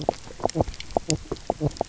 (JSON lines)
{"label": "biophony, knock croak", "recorder": "SoundTrap 300"}